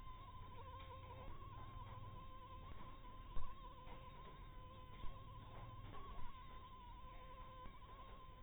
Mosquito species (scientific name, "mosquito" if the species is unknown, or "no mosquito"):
Anopheles maculatus